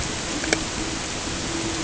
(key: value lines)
label: ambient
recorder: HydroMoth